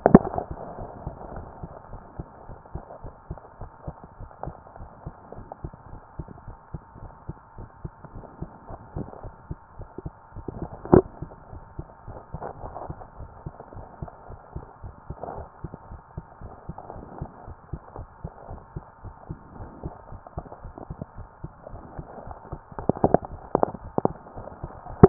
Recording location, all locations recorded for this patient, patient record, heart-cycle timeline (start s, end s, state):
pulmonary valve (PV)
pulmonary valve (PV)
#Age: Child
#Sex: Female
#Height: 135.0 cm
#Weight: 38.5 kg
#Pregnancy status: False
#Murmur: Absent
#Murmur locations: nan
#Most audible location: nan
#Systolic murmur timing: nan
#Systolic murmur shape: nan
#Systolic murmur grading: nan
#Systolic murmur pitch: nan
#Systolic murmur quality: nan
#Diastolic murmur timing: nan
#Diastolic murmur shape: nan
#Diastolic murmur grading: nan
#Diastolic murmur pitch: nan
#Diastolic murmur quality: nan
#Outcome: Abnormal
#Campaign: 2014 screening campaign
0.00	1.20	unannotated
1.20	1.34	diastole
1.34	1.46	S1
1.46	1.62	systole
1.62	1.70	S2
1.70	1.90	diastole
1.90	2.02	S1
2.02	2.18	systole
2.18	2.26	S2
2.26	2.48	diastole
2.48	2.58	S1
2.58	2.74	systole
2.74	2.82	S2
2.82	3.04	diastole
3.04	3.14	S1
3.14	3.30	systole
3.30	3.38	S2
3.38	3.60	diastole
3.60	3.70	S1
3.70	3.86	systole
3.86	3.94	S2
3.94	4.20	diastole
4.20	4.30	S1
4.30	4.44	systole
4.44	4.54	S2
4.54	4.78	diastole
4.78	4.90	S1
4.90	5.06	systole
5.06	5.14	S2
5.14	5.36	diastole
5.36	5.48	S1
5.48	5.62	systole
5.62	5.72	S2
5.72	5.90	diastole
5.90	6.02	S1
6.02	6.18	systole
6.18	6.28	S2
6.28	6.46	diastole
6.46	6.58	S1
6.58	6.72	systole
6.72	6.82	S2
6.82	7.02	diastole
7.02	7.12	S1
7.12	7.28	systole
7.28	7.38	S2
7.38	7.58	diastole
7.58	7.68	S1
7.68	7.82	systole
7.82	7.90	S2
7.90	8.14	diastole
8.14	8.26	S1
8.26	8.40	systole
8.40	8.50	S2
8.50	8.74	diastole
8.74	8.80	S1
8.80	8.96	systole
8.96	9.08	S2
9.08	9.24	diastole
9.24	9.34	S1
9.34	9.48	systole
9.48	9.54	S2
9.54	9.78	diastole
9.78	9.88	S1
9.88	10.04	systole
10.04	10.12	S2
10.12	10.36	diastole
10.36	10.46	S1
10.46	10.58	systole
10.58	10.66	S2
10.66	10.90	diastole
10.90	25.09	unannotated